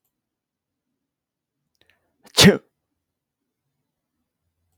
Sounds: Sneeze